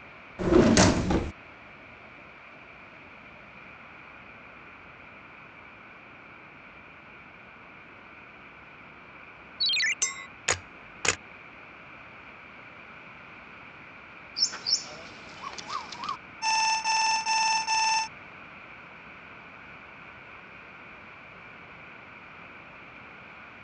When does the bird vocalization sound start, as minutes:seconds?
0:14